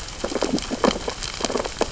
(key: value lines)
label: biophony, sea urchins (Echinidae)
recorder: SoundTrap 600 or HydroMoth